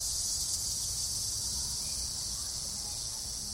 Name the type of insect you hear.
cicada